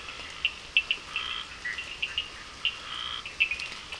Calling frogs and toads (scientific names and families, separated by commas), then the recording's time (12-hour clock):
Sphaenorhynchus surdus (Hylidae), Scinax perereca (Hylidae), Boana bischoffi (Hylidae)
7:30pm